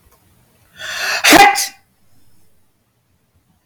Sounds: Sneeze